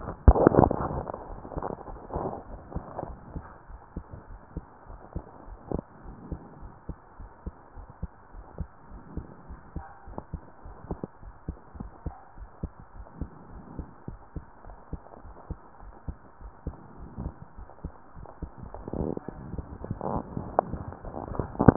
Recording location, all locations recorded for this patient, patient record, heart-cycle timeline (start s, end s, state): pulmonary valve (PV)
aortic valve (AV)+pulmonary valve (PV)+tricuspid valve (TV)+mitral valve (MV)
#Age: nan
#Sex: Female
#Height: nan
#Weight: nan
#Pregnancy status: True
#Murmur: Absent
#Murmur locations: nan
#Most audible location: nan
#Systolic murmur timing: nan
#Systolic murmur shape: nan
#Systolic murmur grading: nan
#Systolic murmur pitch: nan
#Systolic murmur quality: nan
#Diastolic murmur timing: nan
#Diastolic murmur shape: nan
#Diastolic murmur grading: nan
#Diastolic murmur pitch: nan
#Diastolic murmur quality: nan
#Outcome: Abnormal
#Campaign: 2015 screening campaign
0.00	3.68	unannotated
3.68	3.80	S1
3.80	3.96	systole
3.96	4.06	S2
4.06	4.28	diastole
4.28	4.40	S1
4.40	4.56	systole
4.56	4.66	S2
4.66	4.88	diastole
4.88	4.98	S1
4.98	5.12	systole
5.12	5.22	S2
5.22	5.46	diastole
5.46	5.58	S1
5.58	5.70	systole
5.70	5.84	S2
5.84	6.04	diastole
6.04	6.16	S1
6.16	6.30	systole
6.30	6.40	S2
6.40	6.60	diastole
6.60	6.72	S1
6.72	6.88	systole
6.88	6.98	S2
6.98	7.20	diastole
7.20	7.30	S1
7.30	7.46	systole
7.46	7.56	S2
7.56	7.78	diastole
7.78	7.88	S1
7.88	8.02	systole
8.02	8.12	S2
8.12	8.34	diastole
8.34	8.44	S1
8.44	8.56	systole
8.56	8.70	S2
8.70	8.92	diastole
8.92	9.02	S1
9.02	9.14	systole
9.14	9.26	S2
9.26	9.48	diastole
9.48	9.58	S1
9.58	9.72	systole
9.72	9.86	S2
9.86	10.07	diastole
10.07	10.22	S1
10.22	10.31	systole
10.31	10.44	S2
10.44	10.63	diastole
10.63	10.76	S1
10.76	10.88	systole
10.88	10.98	S2
10.98	11.22	diastole
11.22	11.34	S1
11.34	11.46	systole
11.46	11.58	S2
11.58	11.76	diastole
11.76	11.90	S1
11.90	12.02	systole
12.02	12.16	S2
12.16	12.35	diastole
12.35	12.48	S1
12.48	12.61	systole
12.61	12.74	S2
12.74	12.93	diastole
12.93	13.06	S1
13.06	13.18	systole
13.18	13.32	S2
13.32	13.49	diastole
13.49	13.62	S1
13.62	13.74	systole
13.74	13.86	S2
13.86	14.05	diastole
14.05	14.20	S1
14.20	14.33	systole
14.33	14.46	S2
14.46	14.63	diastole
14.63	14.78	S1
14.78	14.91	systole
14.91	15.00	S2
15.00	15.21	diastole
15.21	15.34	S1
15.34	15.47	systole
15.47	15.60	S2
15.60	15.80	diastole
15.80	15.94	S1
15.94	16.05	systole
16.05	16.18	S2
16.18	16.38	diastole
16.38	16.52	S1
16.52	16.64	systole
16.64	16.78	S2
16.78	16.97	diastole
16.97	17.10	S1
17.10	17.20	systole
17.20	17.36	S2
17.36	17.56	diastole
17.56	17.68	S1
17.68	17.83	systole
17.83	17.92	S2
17.92	18.14	diastole
18.14	18.28	S1
18.28	18.38	systole
18.38	18.50	S2
18.50	18.74	diastole
18.74	18.86	S1
18.86	21.76	unannotated